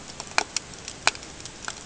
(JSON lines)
{"label": "ambient", "recorder": "HydroMoth"}